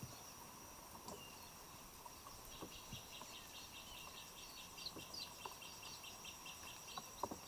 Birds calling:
Gray Apalis (Apalis cinerea)

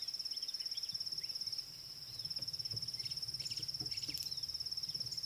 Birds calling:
White-browed Sparrow-Weaver (Plocepasser mahali)

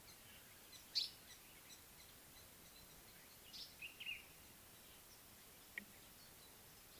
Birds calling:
Common Bulbul (Pycnonotus barbatus), African Paradise-Flycatcher (Terpsiphone viridis)

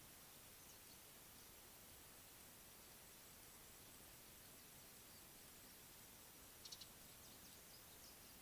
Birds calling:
Beautiful Sunbird (Cinnyris pulchellus)

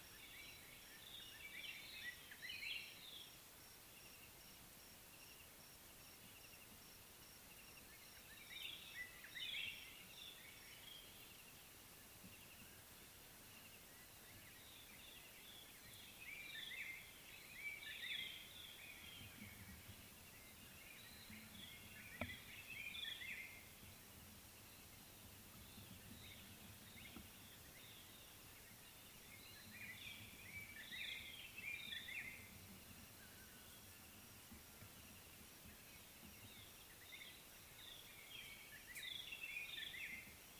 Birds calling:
White-browed Robin-Chat (Cossypha heuglini)

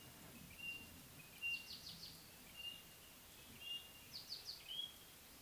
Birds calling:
African Pied Wagtail (Motacilla aguimp), White-browed Robin-Chat (Cossypha heuglini)

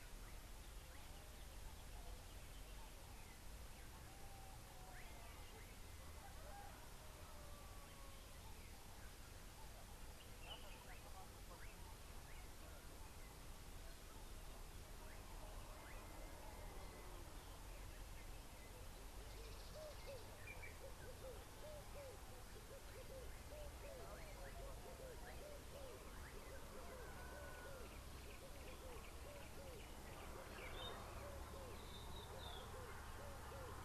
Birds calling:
Red-eyed Dove (Streptopelia semitorquata)

